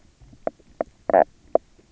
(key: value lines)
label: biophony, knock croak
recorder: SoundTrap 300